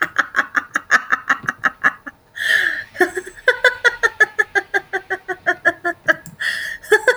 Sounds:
Laughter